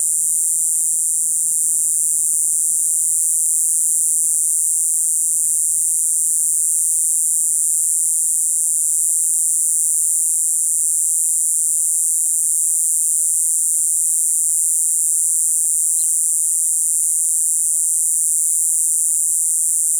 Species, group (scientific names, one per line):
Diceroprocta eugraphica
Cicadidae